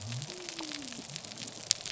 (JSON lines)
{"label": "biophony", "recorder": "SoundTrap 300"}